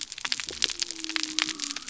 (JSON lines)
{"label": "biophony", "recorder": "SoundTrap 300"}